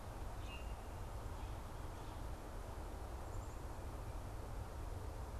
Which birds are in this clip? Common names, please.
Common Grackle